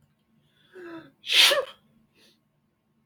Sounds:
Sneeze